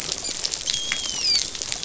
{"label": "biophony, dolphin", "recorder": "SoundTrap 500"}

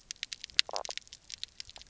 {"label": "biophony, knock croak", "recorder": "SoundTrap 300"}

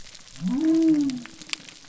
{"label": "biophony", "recorder": "SoundTrap 300"}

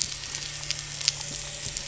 {"label": "anthrophony, boat engine", "recorder": "SoundTrap 300"}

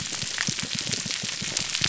{"label": "biophony, pulse", "recorder": "SoundTrap 300"}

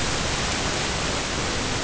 {"label": "ambient", "recorder": "HydroMoth"}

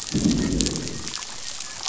{"label": "biophony, growl", "recorder": "SoundTrap 500"}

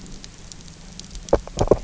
{"label": "biophony, grazing", "recorder": "SoundTrap 300"}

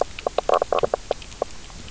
{"label": "biophony, knock croak", "recorder": "SoundTrap 300"}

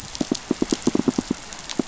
{"label": "biophony, pulse", "recorder": "SoundTrap 500"}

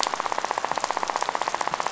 {"label": "biophony, rattle", "recorder": "SoundTrap 500"}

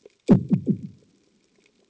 {"label": "anthrophony, bomb", "recorder": "HydroMoth"}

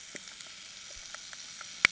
{"label": "anthrophony, boat engine", "recorder": "HydroMoth"}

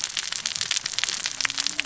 {"label": "biophony, cascading saw", "recorder": "SoundTrap 600 or HydroMoth"}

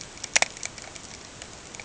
{"label": "ambient", "recorder": "HydroMoth"}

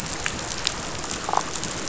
{"label": "biophony, damselfish", "recorder": "SoundTrap 500"}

